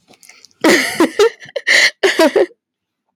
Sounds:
Laughter